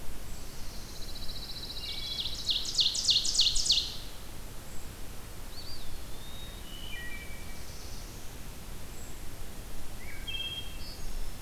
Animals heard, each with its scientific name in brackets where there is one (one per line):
Black-throated Blue Warbler (Setophaga caerulescens)
Pine Warbler (Setophaga pinus)
Wood Thrush (Hylocichla mustelina)
Brown Creeper (Certhia americana)
Eastern Wood-Pewee (Contopus virens)
Ovenbird (Seiurus aurocapilla)